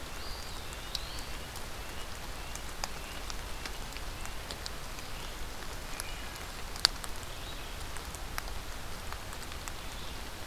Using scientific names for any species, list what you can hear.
Sitta canadensis, Vireo olivaceus, Contopus virens